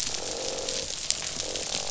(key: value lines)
label: biophony, croak
recorder: SoundTrap 500